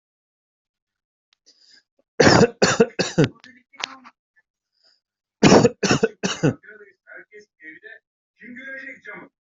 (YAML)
expert_labels:
- quality: ok
  cough_type: dry
  dyspnea: false
  wheezing: false
  stridor: false
  choking: false
  congestion: false
  nothing: true
  diagnosis: COVID-19
  severity: mild
age: 30
gender: male
respiratory_condition: false
fever_muscle_pain: false
status: healthy